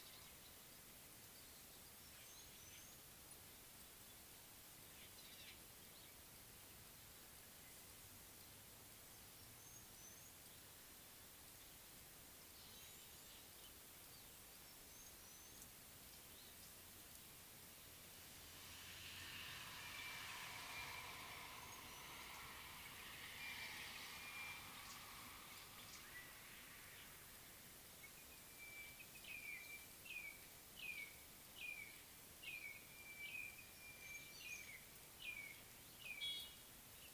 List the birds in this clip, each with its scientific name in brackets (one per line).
Spotted Morning-Thrush (Cichladusa guttata)